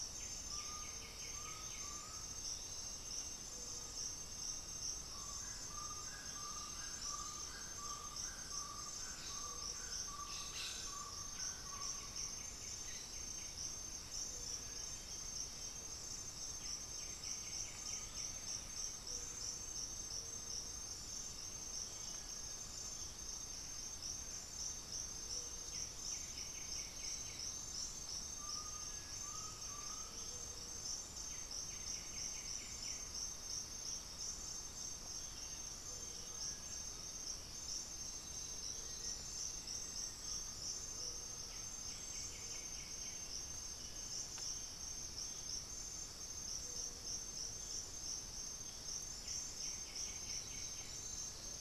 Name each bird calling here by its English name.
White-winged Becard, Undulated Tinamou, unidentified bird, Gray-cowled Wood-Rail, Black-throated Antbird, Cinereous Tinamou, Black-faced Antthrush, Hauxwell's Thrush